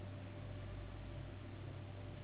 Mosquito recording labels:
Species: Anopheles gambiae s.s.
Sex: female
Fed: unfed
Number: one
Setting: insect culture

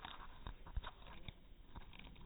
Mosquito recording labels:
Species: no mosquito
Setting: cup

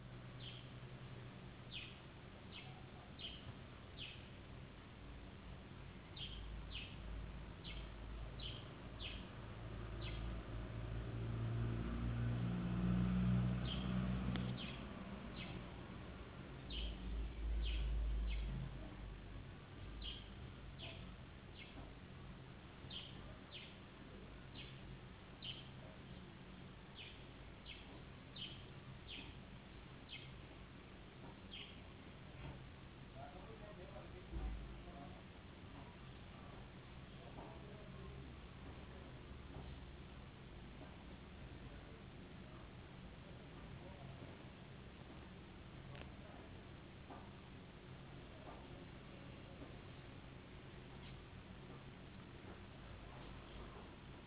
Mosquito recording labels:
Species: no mosquito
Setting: insect culture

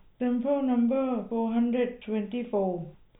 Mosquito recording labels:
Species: no mosquito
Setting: cup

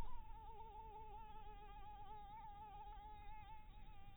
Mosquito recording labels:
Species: Anopheles dirus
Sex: female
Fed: blood-fed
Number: one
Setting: cup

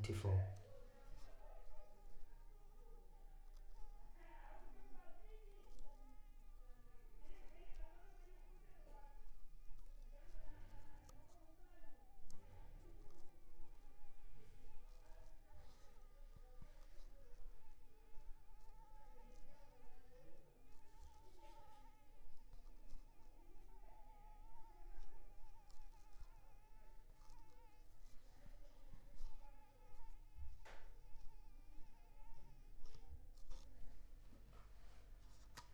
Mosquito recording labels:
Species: Anopheles arabiensis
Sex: female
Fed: unfed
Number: one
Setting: cup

